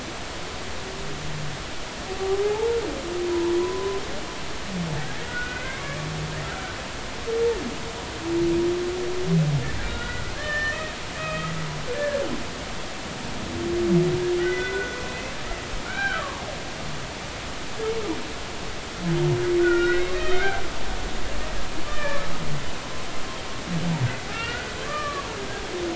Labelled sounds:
2.4	2.8	humpback whale, 0.80 to 0.96 kHz
3.6	4.0	humpback whale, 0.93 to 1.1 kHz
5.2	6.0	humpback whale, 1.0 to 2.3 kHz
9.8	10.9	humpback whale, 1.1 to 3.1 kHz
11.2	11.5	humpback whale, 1.2 to 3.2 kHz
14.4	16.4	humpback whale, 0.86 to 2.7 kHz
19.6	20.6	humpback whale, 1.3 to 2.8 kHz
21.9	22.2	humpback whale, 1.1 to 2.4 kHz
24.3	25.3	humpback whale, 1.1 to 2.5 kHz

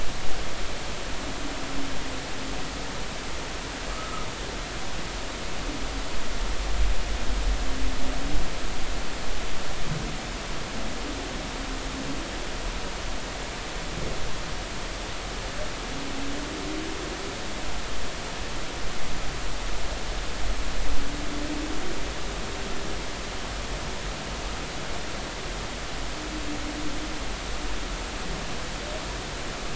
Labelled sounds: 3.9	4.3	humpback whale, 1.2 to 1.4 kHz

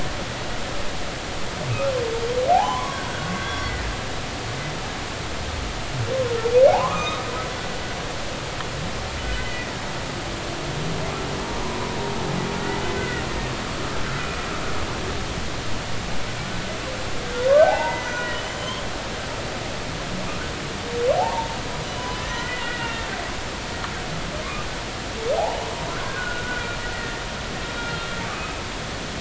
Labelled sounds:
2.5	3.7	humpback whale, 0.80 to 5.8 kHz
6.7	7.3	humpback whale, 0.80 to 3.8 kHz
9.4	9.7	humpback whale, 1.9 to 2.1 kHz
11.4	11.7	humpback whale, 0.90 to 1.1 kHz
12.9	13.2	humpback whale, 1.4 to 2.1 kHz
17.6	18.8	humpback whale, 0.80 to 7.2 kHz
21.1	21.5	humpback whale, 0.80 to 0.99 kHz
22.1	23.1	humpback whale, 1.3 to 6.1 kHz
25.3	25.7	humpback whale, 0.80 to 0.99 kHz
26.1	26.7	humpback whale, 1.4 to 1.7 kHz
26.9	28.6	humpback whale, 1.1 to 2.6 kHz

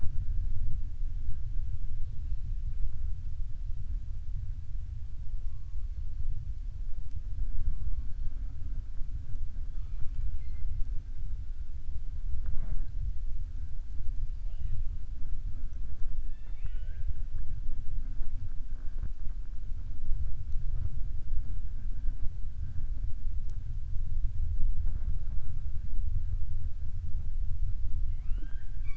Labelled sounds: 9.7	10.7	killer whale, southern resident, 0.45 to 4.4 kHz
16.2	17.1	killer whale, southern resident, 0.44 to 3.6 kHz

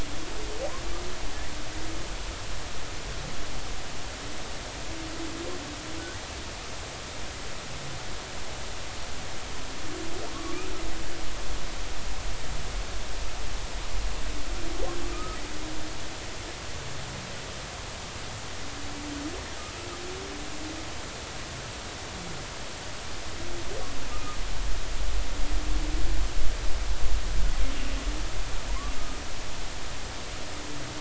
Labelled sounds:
15.1	15.4	humpback whale, 1.2 to 1.3 kHz
24.1	24.4	humpback whale, 1.2 to 1.3 kHz
28.7	28.9	humpback whale, 0.90 to 1.2 kHz

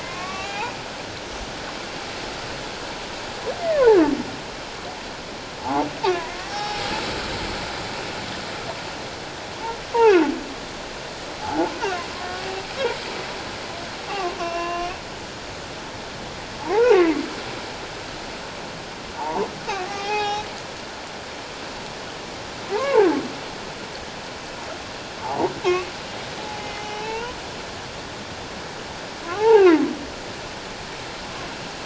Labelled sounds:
0.0	0.7	humpback whale, 0.78 to 2.8 kHz
3.7	4.0	humpback whale, 0.78 to 1.2 kHz
5.6	6.8	humpback whale, 0.78 to 5.5 kHz
9.9	10.3	humpback whale, 1.4 to 2.8 kHz
11.4	12.4	humpback whale, 0.78 to 1.2 kHz
14.1	14.9	humpback whale, 0.97 to 5.5 kHz
16.7	17.1	humpback whale, 0.78 to 2.2 kHz
19.2	20.5	humpback whale, 0.78 to 6.0 kHz
22.7	23.1	humpback whale, 0.78 to 2.3 kHz
25.2	25.5	humpback whale, 0.78 to 1.0 kHz
26.6	27.4	humpback whale, 0.84 to 6.0 kHz
29.3	29.8	humpback whale, 0.78 to 2.9 kHz

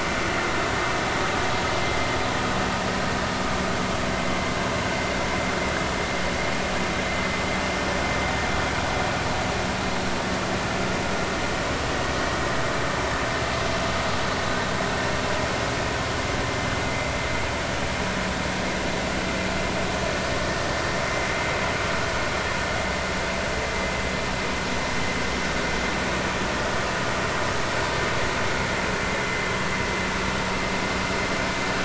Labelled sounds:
29.2	29.4	vessel noise, 2.0 to 2.1 kHz

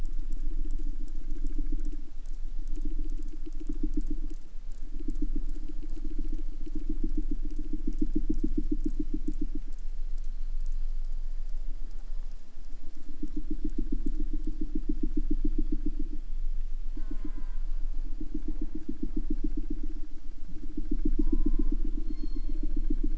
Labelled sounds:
16.9	18.1	killer whale, southern resident, J pod, call S04, 0 to 8.0 kHz
21.1	21.9	killer whale, southern resident, J pod, call S04, 0.55 to 2.9 kHz
21.9	23.1	killer whale, southern resident, 0.38 to 7.0 kHz

